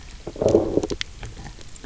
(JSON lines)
{"label": "biophony, low growl", "recorder": "SoundTrap 300"}